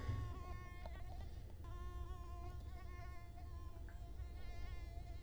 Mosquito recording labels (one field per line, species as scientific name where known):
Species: Culex quinquefasciatus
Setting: cup